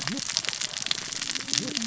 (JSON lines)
{"label": "biophony, cascading saw", "recorder": "SoundTrap 600 or HydroMoth"}